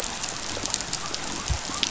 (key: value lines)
label: biophony
recorder: SoundTrap 500